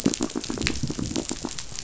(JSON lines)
{"label": "biophony", "recorder": "SoundTrap 500"}